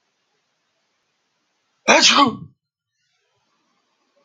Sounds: Sneeze